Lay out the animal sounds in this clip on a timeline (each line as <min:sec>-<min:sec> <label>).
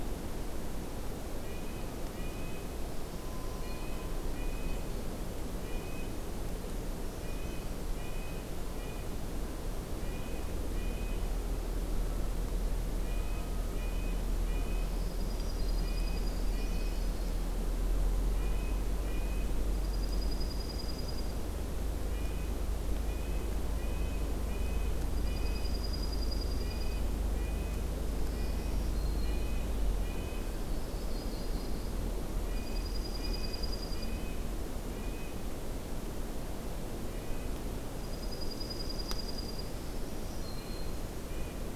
0:01.3-0:11.2 Red-breasted Nuthatch (Sitta canadensis)
0:12.9-0:19.7 Red-breasted Nuthatch (Sitta canadensis)
0:14.7-0:16.4 Black-throated Green Warbler (Setophaga virens)
0:14.8-0:16.6 Dark-eyed Junco (Junco hyemalis)
0:16.0-0:17.6 Yellow-rumped Warbler (Setophaga coronata)
0:19.6-0:21.6 Dark-eyed Junco (Junco hyemalis)
0:22.1-0:30.6 Red-breasted Nuthatch (Sitta canadensis)
0:25.0-0:27.2 Dark-eyed Junco (Junco hyemalis)
0:28.2-0:29.6 Black-throated Green Warbler (Setophaga virens)
0:30.3-0:32.0 Yellow-rumped Warbler (Setophaga coronata)
0:32.4-0:34.2 Dark-eyed Junco (Junco hyemalis)
0:32.4-0:35.5 Red-breasted Nuthatch (Sitta canadensis)
0:37.0-0:37.6 Red-breasted Nuthatch (Sitta canadensis)
0:37.9-0:39.7 Dark-eyed Junco (Junco hyemalis)
0:39.6-0:41.2 Black-throated Green Warbler (Setophaga virens)
0:40.4-0:41.7 Red-breasted Nuthatch (Sitta canadensis)